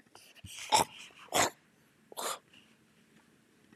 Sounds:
Throat clearing